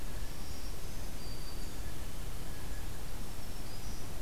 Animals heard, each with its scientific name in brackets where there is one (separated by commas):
Blue Jay (Cyanocitta cristata), Black-throated Green Warbler (Setophaga virens)